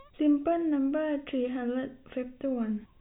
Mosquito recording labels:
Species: no mosquito; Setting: cup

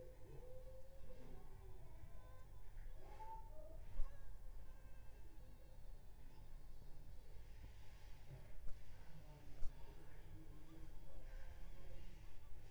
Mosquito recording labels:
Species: Anopheles funestus s.s.; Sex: female; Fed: unfed; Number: one; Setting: cup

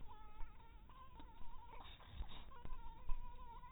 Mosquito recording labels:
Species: mosquito; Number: one; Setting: cup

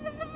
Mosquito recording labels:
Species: Anopheles quadriannulatus; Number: one; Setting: insect culture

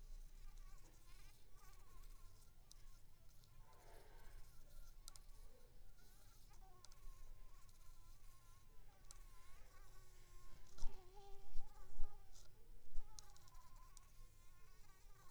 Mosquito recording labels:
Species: Anopheles squamosus; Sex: female; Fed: unfed; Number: one; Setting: cup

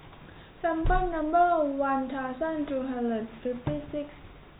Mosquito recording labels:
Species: no mosquito; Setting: cup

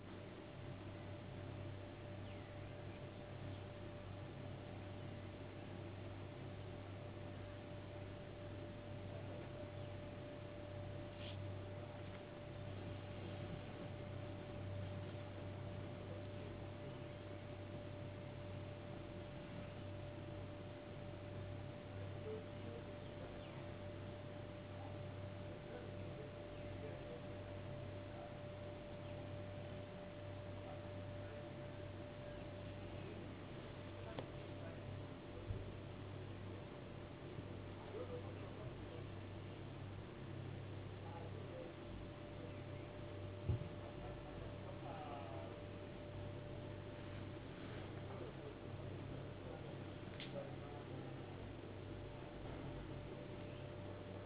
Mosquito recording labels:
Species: no mosquito; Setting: insect culture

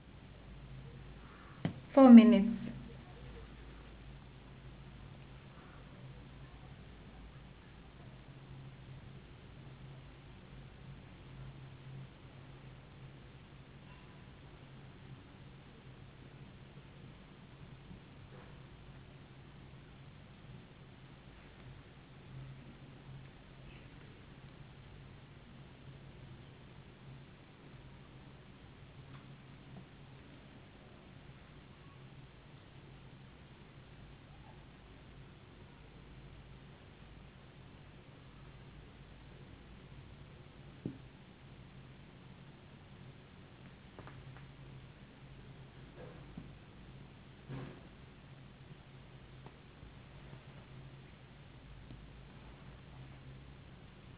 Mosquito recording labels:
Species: no mosquito; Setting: insect culture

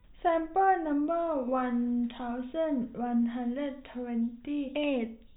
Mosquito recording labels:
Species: no mosquito; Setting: cup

